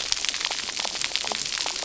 {"label": "biophony, cascading saw", "recorder": "SoundTrap 300"}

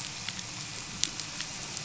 {"label": "anthrophony, boat engine", "recorder": "SoundTrap 500"}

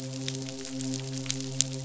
{"label": "biophony, midshipman", "recorder": "SoundTrap 500"}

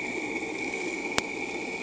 {"label": "anthrophony, boat engine", "recorder": "HydroMoth"}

